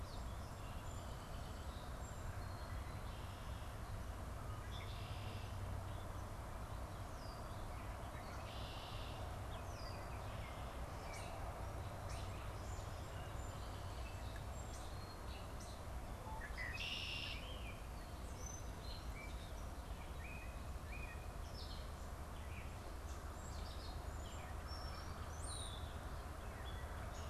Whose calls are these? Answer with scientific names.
Agelaius phoeniceus, Icterus galbula, Sturnus vulgaris, Dumetella carolinensis, Molothrus ater